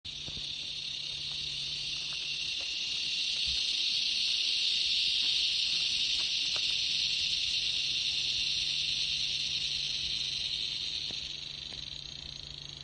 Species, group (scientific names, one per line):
Henicopsaltria eydouxii
Cicadidae